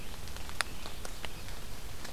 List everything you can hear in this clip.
Red-eyed Vireo